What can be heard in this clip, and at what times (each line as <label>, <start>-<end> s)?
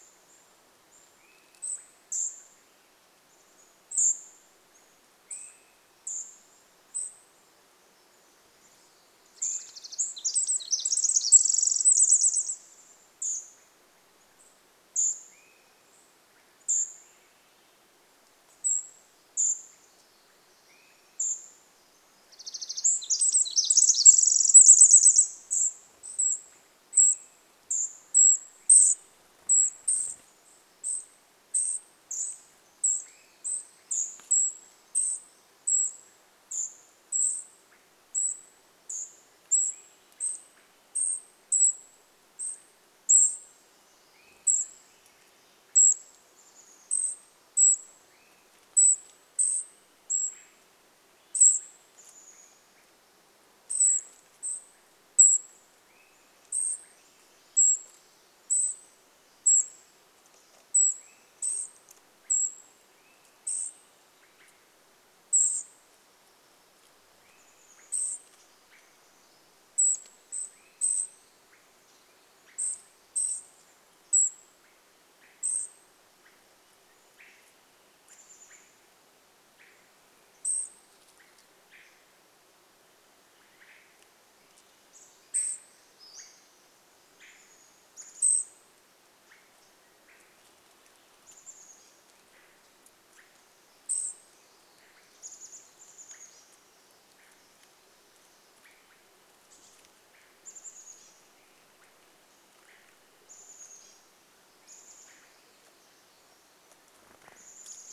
Swainson's Thrush call, 0-2 s
unidentified bird chip note, 0-2 s
Cedar Waxwing call, 0-10 s
Chestnut-backed Chickadee call, 2-4 s
Swainson's Thrush call, 4-6 s
Chestnut-backed Chickadee call, 8-10 s
Swainson's Thrush call, 8-10 s
Pacific Wren song, 8-14 s
Swainson's Thrush call, 12-16 s
Cedar Waxwing call, 12-22 s
Chestnut-backed Chickadee call, 14-16 s
Swainson's Thrush song, 16-18 s
Swainson's Thrush call, 20-22 s
Swainson's Thrush song, 22-24 s
Pacific Wren song, 22-26 s
Cedar Waxwing call, 24-76 s
Swainson's Thrush call, 26-28 s
Swainson's Thrush song, 28-30 s
Swainson's Thrush call, 32-34 s
Swainson's Thrush call, 36-42 s
Swainson's Thrush call, 44-46 s
Chestnut-backed Chickadee call, 46-48 s
Swainson's Thrush call, 48-108 s
Chestnut-backed Chickadee call, 52-54 s
Swainson's Thrush song, 56-58 s
Chestnut-backed Chickadee call, 66-68 s
Chestnut-backed Chickadee call, 78-80 s
Cedar Waxwing call, 80-82 s
Cedar Waxwing call, 84-86 s
Chestnut-backed Chickadee call, 84-92 s
Pacific-slope Flycatcher call, 86-88 s
Cedar Waxwing call, 88-90 s
Cedar Waxwing call, 92-96 s
Chestnut-backed Chickadee call, 94-108 s
bird wingbeats, 106-108 s